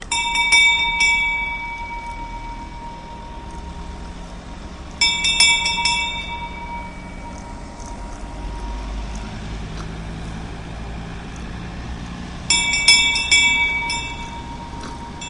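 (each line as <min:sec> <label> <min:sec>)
0:00.0 A bell rings loudly and repeatedly. 0:01.8
0:01.8 A truck engine passes by, producing a steady low rumble. 0:05.0
0:05.0 A bell rings loudly and repeatedly. 0:06.4
0:06.4 A truck engine passes by, producing a steady low rumble. 0:12.5
0:12.5 A bell rings loudly and repeatedly. 0:15.3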